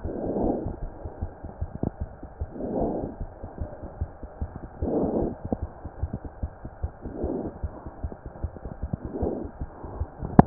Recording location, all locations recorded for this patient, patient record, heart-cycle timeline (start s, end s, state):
pulmonary valve (PV)
aortic valve (AV)+pulmonary valve (PV)+tricuspid valve (TV)+mitral valve (MV)
#Age: Child
#Sex: Male
#Height: 104.0 cm
#Weight: 17.1 kg
#Pregnancy status: False
#Murmur: Absent
#Murmur locations: nan
#Most audible location: nan
#Systolic murmur timing: nan
#Systolic murmur shape: nan
#Systolic murmur grading: nan
#Systolic murmur pitch: nan
#Systolic murmur quality: nan
#Diastolic murmur timing: nan
#Diastolic murmur shape: nan
#Diastolic murmur grading: nan
#Diastolic murmur pitch: nan
#Diastolic murmur quality: nan
#Outcome: Abnormal
#Campaign: 2015 screening campaign
0.00	3.43	unannotated
3.43	3.48	S1
3.48	3.59	systole
3.59	3.67	S2
3.67	3.82	diastole
3.82	3.88	S1
3.88	4.00	systole
4.00	4.07	S2
4.07	4.22	diastole
4.22	4.28	S1
4.28	4.40	systole
4.40	4.46	S2
4.46	4.61	diastole
4.61	4.68	S1
4.68	4.80	systole
4.80	4.87	S2
4.87	5.43	unannotated
5.43	5.50	S1
5.50	5.61	systole
5.61	5.66	S2
5.66	5.84	diastole
5.84	5.89	S1
5.89	6.01	systole
6.01	6.07	S2
6.07	6.23	diastole
6.23	6.28	S1
6.28	6.41	systole
6.41	6.47	S2
6.47	6.63	diastole
6.63	6.69	S1
6.69	6.81	systole
6.81	6.88	S2
6.88	7.03	diastole
7.03	7.09	S1
7.09	7.21	systole
7.21	7.28	S2
7.28	10.46	unannotated